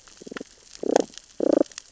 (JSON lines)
{"label": "biophony, damselfish", "recorder": "SoundTrap 600 or HydroMoth"}